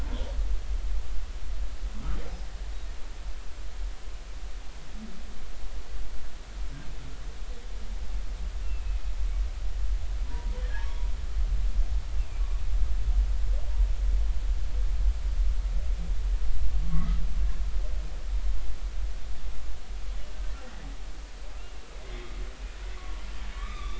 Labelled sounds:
8.6	9.1	humpback whale, 2.5 to 2.8 kHz
10.3	11.0	humpback whale, 0.83 to 1.9 kHz
16.8	17.2	humpback whale, 1.1 to 1.3 kHz
22.1	22.3	humpback whale, 3.2 to 3.3 kHz
23.0	23.9	humpback whale, 1.1 to 2.6 kHz

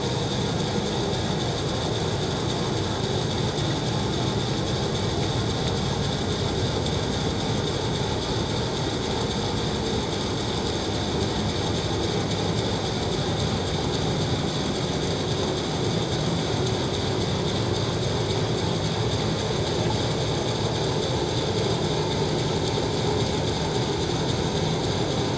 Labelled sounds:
1.1	1.4	vessel noise, 5.6 to 5.9 kHz

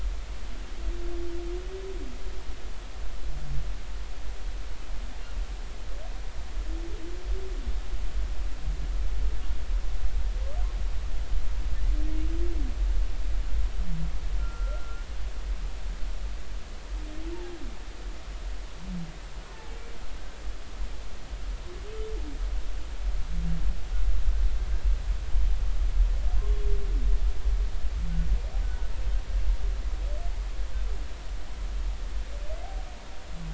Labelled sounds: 14.4	15.0	humpback whale, 1.3 to 1.5 kHz
17.3	17.6	humpback whale, 0.80 to 0.99 kHz
19.5	19.8	humpback whale, 0.80 to 0.93 kHz
28.6	28.9	humpback whale, 1.4 to 1.5 kHz

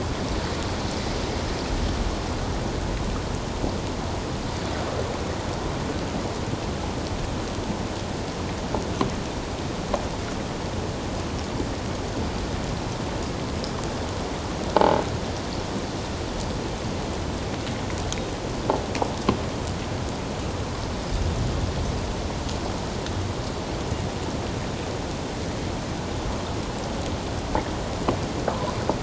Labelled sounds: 14.8	15.0	croaking sound likely from a nearby submerged object, 0.81 to 0.94 kHz

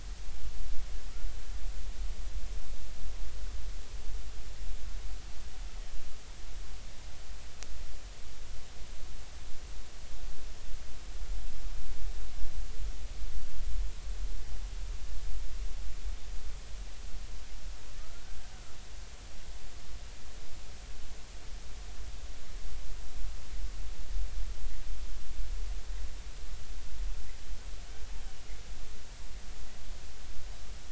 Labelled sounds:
18.1	18.4	killer whale, Bigg's (transient), 1.3 to 1.6 kHz

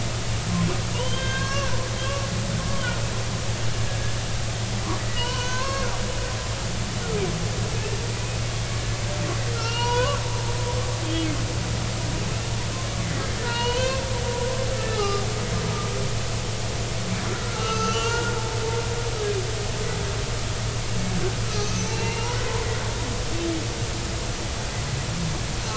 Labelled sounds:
0.9	1.8	humpback whale, 0.90 to 6.2 kHz
5.1	5.9	humpback whale, 0.90 to 4.6 kHz
9.5	10.2	humpback whale, 0.86 to 4.4 kHz
11.0	11.3	humpback whale, 3.1 to 3.3 kHz
13.4	14.0	humpback whale, 0.90 to 4.4 kHz
14.7	15.2	humpback whale, 1.2 to 1.8 kHz
17.2	18.4	humpback whale, 0.86 to 6.3 kHz
21.6	22.6	humpback whale, 0.90 to 6.2 kHz
22.9	23.3	humpback whale, 2.7 to 2.9 kHz

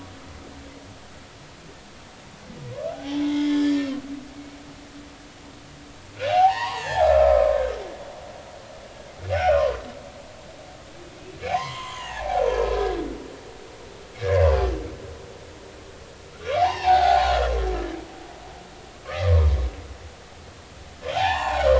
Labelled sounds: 2.9	3.9	humpback whale, 0.80 to 3.6 kHz
6.3	7.6	humpback whale, 0.80 to 4.7 kHz
9.3	9.8	humpback whale, 0.96 to 5.8 kHz
11.5	12.9	humpback whale, 0.80 to 3.4 kHz
16.3	17.3	humpback whale, 0.80 to 4.8 kHz
19.0	19.5	humpback whale, 0.93 to 1.3 kHz
21.1	21.7	humpback whale, 0.80 to 4.6 kHz

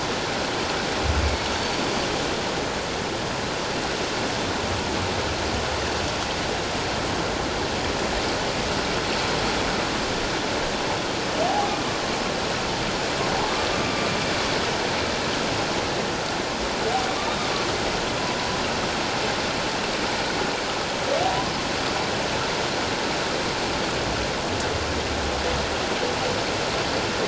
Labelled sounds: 1.2	1.5	humpback whale, 2.2 to 2.3 kHz
11.4	11.7	humpback whale, 0.78 to 0.88 kHz
13.8	14.1	humpback whale, 1.16 to 1.22 kHz

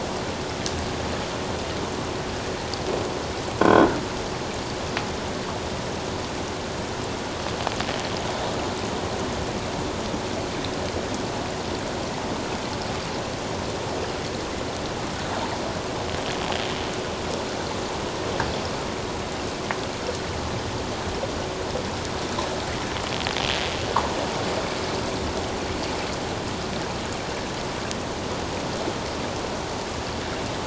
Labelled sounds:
3.6	3.9	croaking sound likely from a nearby submerged object, 1.4 to 3.4 kHz

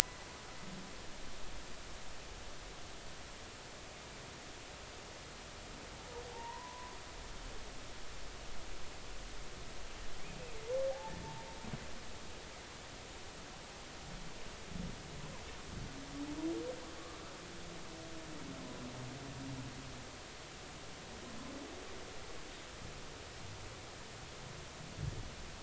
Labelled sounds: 6.3	6.9	humpback whale, 0.80 to 1.1 kHz

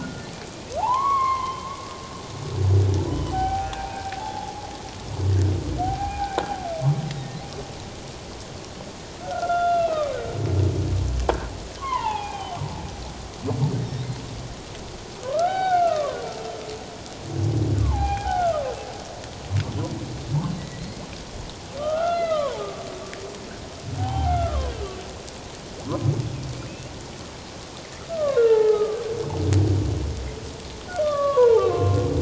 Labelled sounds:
0.0	1.7	humpback whale, 0.78 to 4.4 kHz
3.3	4.7	humpback whale, 0.78 to 1.6 kHz
5.8	6.4	humpback whale, 0.78 to 2.5 kHz
7.1	7.4	humpback whale, 1.8 to 2.2 kHz
9.2	10.2	humpback whale, 1.1 to 3.5 kHz
11.8	12.6	humpback whale, 0.78 to 3.2 kHz
15.2	16.2	humpback whale, 0.78 to 3.8 kHz
17.8	18.7	humpback whale, 0.78 to 3.3 kHz
20.6	22.6	humpback whale, 0.81 to 4.3 kHz
24.0	24.7	humpback whale, 0.78 to 3.2 kHz
26.7	26.9	humpback whale, 2.5 to 2.8 kHz
28.1	29.0	humpback whale, 0.78 to 1.9 kHz
31.0	32.0	humpback whale, 0.78 to 1.8 kHz

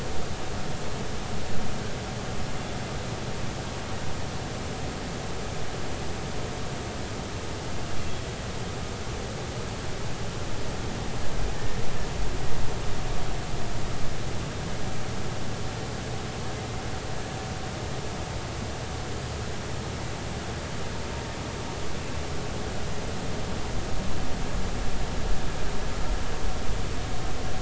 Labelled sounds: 8.1	8.3	humpback whale, 3.2 to 3.4 kHz

